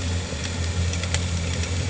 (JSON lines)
{"label": "anthrophony, boat engine", "recorder": "HydroMoth"}